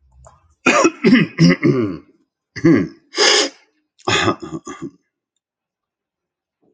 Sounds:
Throat clearing